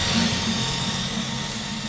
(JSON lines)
{"label": "anthrophony, boat engine", "recorder": "SoundTrap 500"}